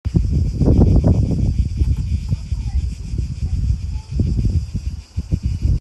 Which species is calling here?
Cicada orni